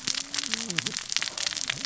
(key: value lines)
label: biophony, cascading saw
recorder: SoundTrap 600 or HydroMoth